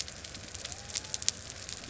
{"label": "anthrophony, boat engine", "recorder": "SoundTrap 300"}
{"label": "biophony", "recorder": "SoundTrap 300"}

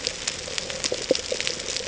{"label": "ambient", "recorder": "HydroMoth"}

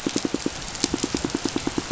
{"label": "biophony, pulse", "recorder": "SoundTrap 500"}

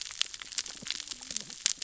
{"label": "biophony, cascading saw", "recorder": "SoundTrap 600 or HydroMoth"}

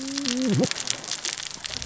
{"label": "biophony, cascading saw", "recorder": "SoundTrap 600 or HydroMoth"}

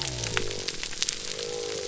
{"label": "biophony", "recorder": "SoundTrap 300"}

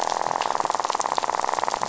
{"label": "biophony, rattle", "recorder": "SoundTrap 500"}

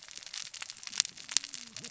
{"label": "biophony, cascading saw", "recorder": "SoundTrap 600 or HydroMoth"}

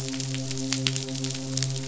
{"label": "biophony, midshipman", "recorder": "SoundTrap 500"}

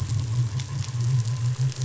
{"label": "anthrophony, boat engine", "recorder": "SoundTrap 500"}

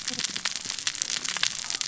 {"label": "biophony, cascading saw", "recorder": "SoundTrap 600 or HydroMoth"}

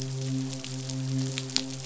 {"label": "biophony, midshipman", "recorder": "SoundTrap 500"}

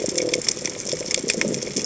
{"label": "biophony", "recorder": "HydroMoth"}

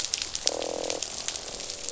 {"label": "biophony, croak", "recorder": "SoundTrap 500"}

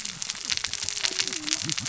{"label": "biophony, cascading saw", "recorder": "SoundTrap 600 or HydroMoth"}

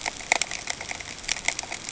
{"label": "ambient", "recorder": "HydroMoth"}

